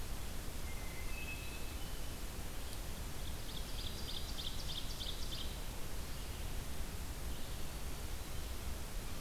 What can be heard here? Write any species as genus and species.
Catharus guttatus, Seiurus aurocapilla, Setophaga virens